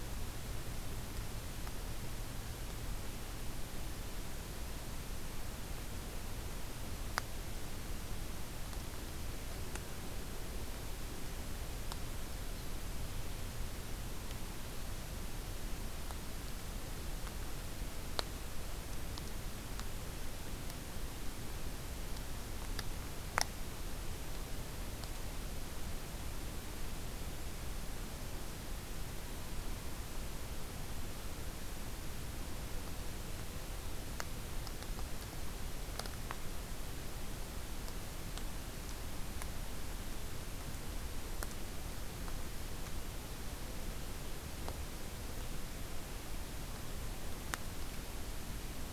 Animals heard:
forest ambience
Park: Acadia National Park